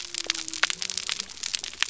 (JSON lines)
{"label": "biophony", "recorder": "SoundTrap 300"}